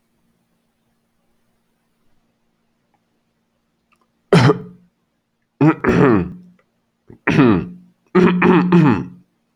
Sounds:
Throat clearing